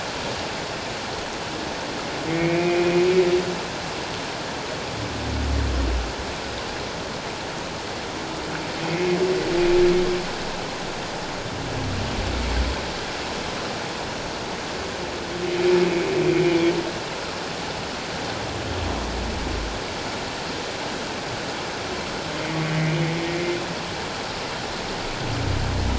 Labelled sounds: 2.3	2.8	humpback whale, 2.0 to 2.5 kHz
8.8	9.2	humpback whale, 2.0 to 2.6 kHz
16.4	16.7	humpback whale, 2.3 to 2.5 kHz

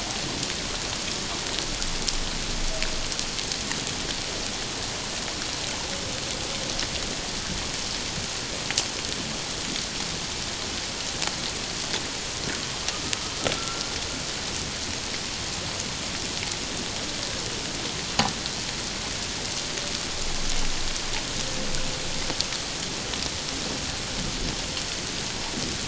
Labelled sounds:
13.5	13.8	humpback whale, 1.3 to 1.4 kHz

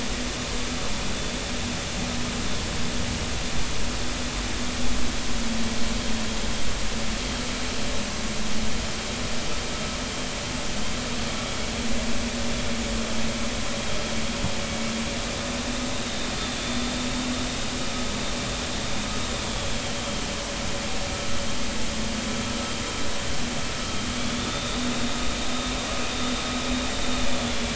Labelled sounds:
19.5	19.7	vessel noise, 3.1 to 3.5 kHz
24.4	24.8	vessel noise, 3.5 to 3.8 kHz

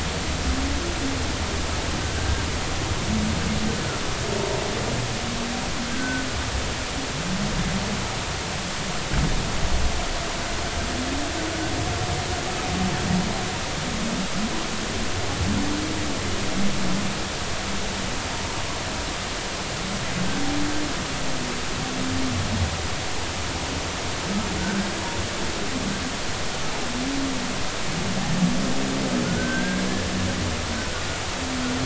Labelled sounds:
2.1	2.4	humpback whale, 1.5 to 1.7 kHz
5.9	6.3	humpback whale, 1.4 to 1.6 kHz
24.6	24.9	humpback whale, 1.4 to 1.7 kHz
29.2	29.8	humpback whale, 1.4 to 1.7 kHz

